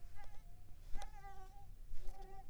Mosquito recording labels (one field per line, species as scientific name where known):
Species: Mansonia uniformis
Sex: female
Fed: unfed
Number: one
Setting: cup